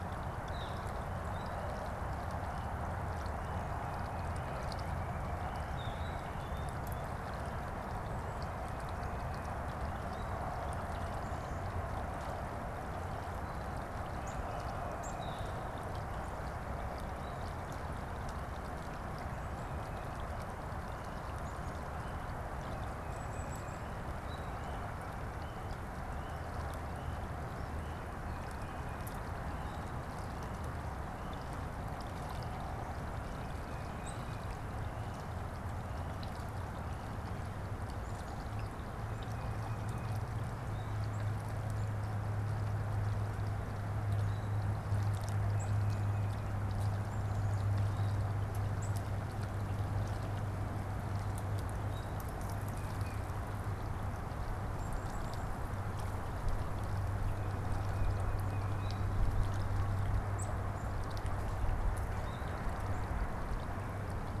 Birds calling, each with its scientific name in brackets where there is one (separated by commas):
Northern Flicker (Colaptes auratus), Tufted Titmouse (Baeolophus bicolor), Black-capped Chickadee (Poecile atricapillus)